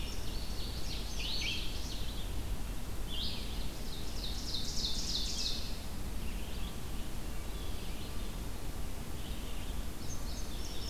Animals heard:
Indigo Bunting (Passerina cyanea)
Ovenbird (Seiurus aurocapilla)
Red-eyed Vireo (Vireo olivaceus)

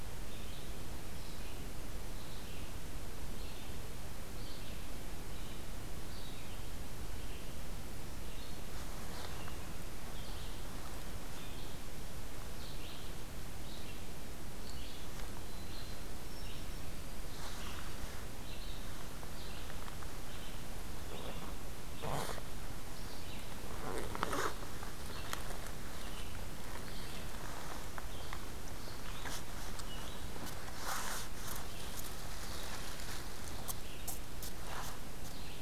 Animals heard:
Red-eyed Vireo (Vireo olivaceus)

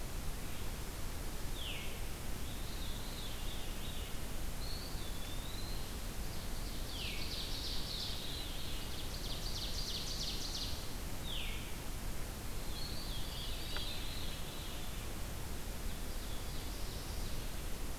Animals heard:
Veery (Catharus fuscescens)
Ovenbird (Seiurus aurocapilla)
Eastern Wood-Pewee (Contopus virens)

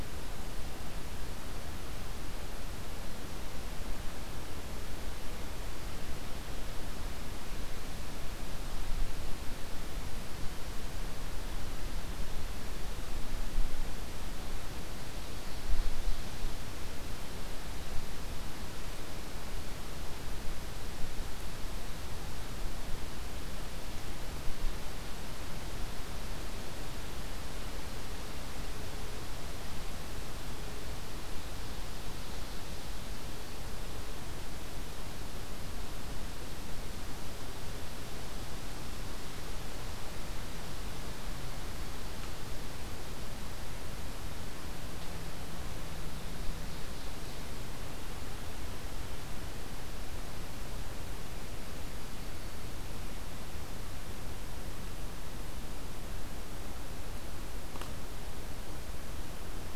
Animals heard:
Ovenbird (Seiurus aurocapilla)

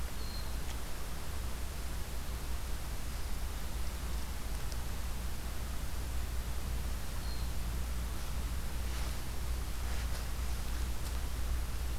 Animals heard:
Hermit Thrush (Catharus guttatus)

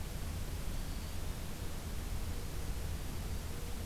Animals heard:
Black-throated Green Warbler (Setophaga virens)

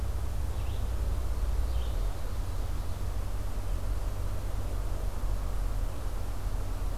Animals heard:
Red-eyed Vireo (Vireo olivaceus)
Ovenbird (Seiurus aurocapilla)

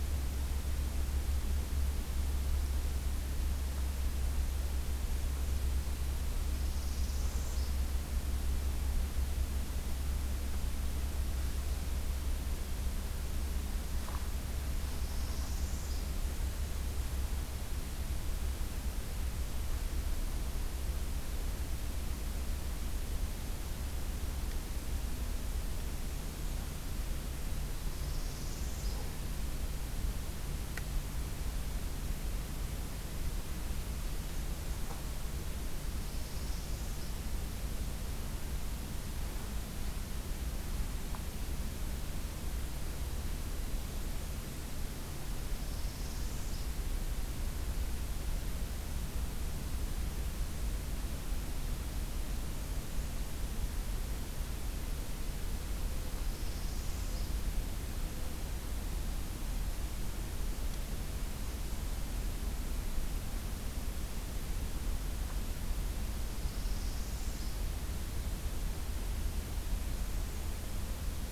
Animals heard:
Northern Parula (Setophaga americana)
Blackburnian Warbler (Setophaga fusca)

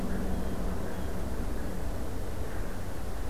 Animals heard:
Blue Jay (Cyanocitta cristata)

